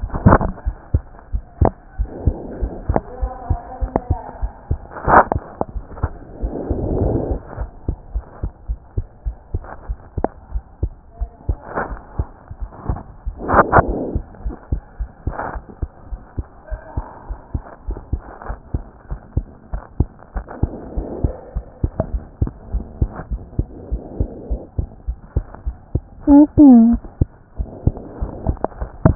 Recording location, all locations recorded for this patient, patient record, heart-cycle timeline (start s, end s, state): pulmonary valve (PV)
aortic valve (AV)+pulmonary valve (PV)+tricuspid valve (TV)+mitral valve (MV)
#Age: Child
#Sex: Female
#Height: 103.0 cm
#Weight: 14.0 kg
#Pregnancy status: False
#Murmur: Absent
#Murmur locations: nan
#Most audible location: nan
#Systolic murmur timing: nan
#Systolic murmur shape: nan
#Systolic murmur grading: nan
#Systolic murmur pitch: nan
#Systolic murmur quality: nan
#Diastolic murmur timing: nan
#Diastolic murmur shape: nan
#Diastolic murmur grading: nan
#Diastolic murmur pitch: nan
#Diastolic murmur quality: nan
#Outcome: Abnormal
#Campaign: 2014 screening campaign
0.00	7.58	unannotated
7.58	7.70	S1
7.70	7.86	systole
7.86	7.96	S2
7.96	8.14	diastole
8.14	8.24	S1
8.24	8.42	systole
8.42	8.52	S2
8.52	8.68	diastole
8.68	8.80	S1
8.80	8.96	systole
8.96	9.06	S2
9.06	9.26	diastole
9.26	9.36	S1
9.36	9.52	systole
9.52	9.62	S2
9.62	9.88	diastole
9.88	9.98	S1
9.98	10.16	systole
10.16	10.26	S2
10.26	10.52	diastole
10.52	10.64	S1
10.64	10.82	systole
10.82	10.90	S2
10.90	11.20	diastole
11.20	11.30	S1
11.30	11.48	systole
11.48	11.58	S2
11.58	11.89	diastole
11.89	12.00	S1
12.00	12.18	systole
12.18	12.26	S2
12.26	12.60	diastole
12.60	12.70	S1
12.70	12.88	systole
12.88	12.98	S2
12.98	13.26	diastole
13.26	29.15	unannotated